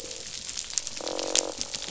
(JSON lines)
{"label": "biophony, croak", "recorder": "SoundTrap 500"}
{"label": "biophony", "recorder": "SoundTrap 500"}